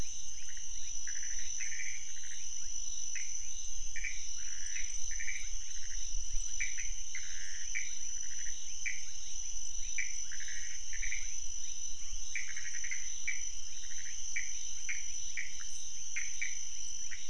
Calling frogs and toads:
Leptodactylus fuscus, Pithecopus azureus

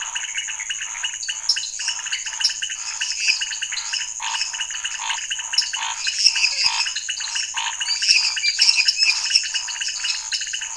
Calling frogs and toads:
Dendropsophus minutus, Dendropsophus nanus, Leptodactylus podicipinus, Scinax fuscovarius

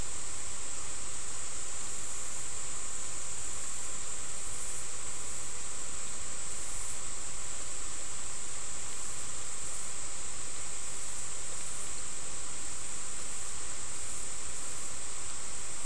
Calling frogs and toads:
none

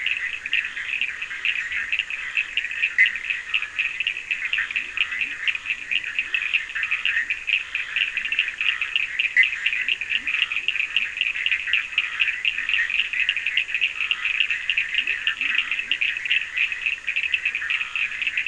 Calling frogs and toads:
Boana bischoffi, Sphaenorhynchus surdus, Scinax perereca, Leptodactylus latrans

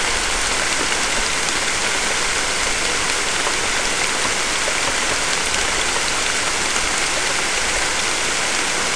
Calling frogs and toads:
none

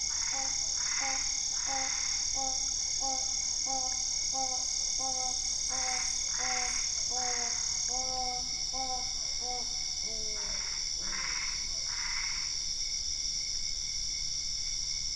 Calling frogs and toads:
Boana albopunctata

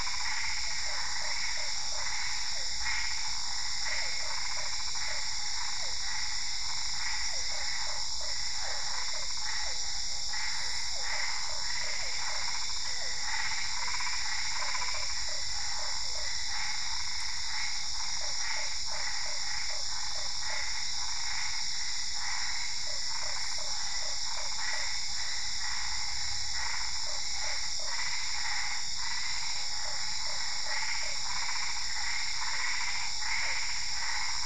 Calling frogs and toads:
Boana albopunctata, Boana lundii, Physalaemus cuvieri

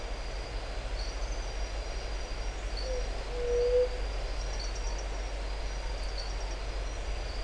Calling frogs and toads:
Adenomera marmorata

